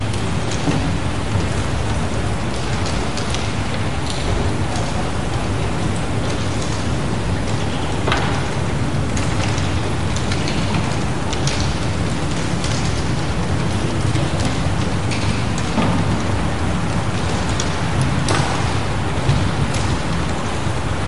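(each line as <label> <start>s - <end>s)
Rain dripping quietly with a slight echo. 0.0s - 21.1s
White noise is heard in the background of an outdoor environment. 0.0s - 21.1s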